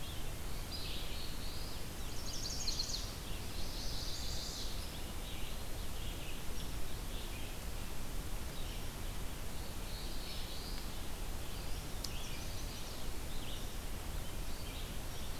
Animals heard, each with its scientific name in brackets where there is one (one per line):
Chestnut-sided Warbler (Setophaga pensylvanica)
Black-throated Blue Warbler (Setophaga caerulescens)
Red-eyed Vireo (Vireo olivaceus)
Eastern Wood-Pewee (Contopus virens)